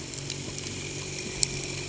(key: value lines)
label: anthrophony, boat engine
recorder: HydroMoth